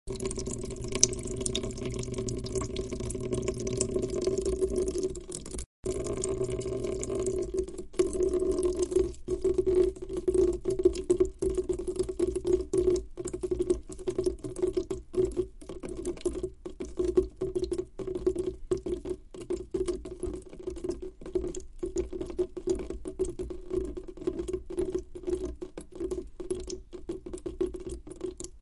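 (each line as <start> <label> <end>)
0.0 Water dripping from a faucet. 28.6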